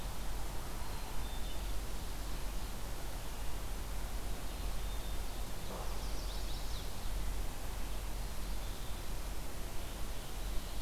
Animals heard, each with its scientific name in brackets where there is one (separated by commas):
Black-capped Chickadee (Poecile atricapillus), Chestnut-sided Warbler (Setophaga pensylvanica)